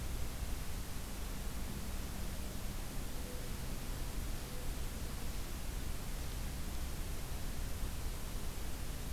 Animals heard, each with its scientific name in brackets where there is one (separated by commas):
Mourning Dove (Zenaida macroura)